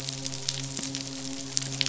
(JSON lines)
{"label": "biophony, midshipman", "recorder": "SoundTrap 500"}